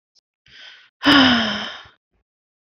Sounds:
Sigh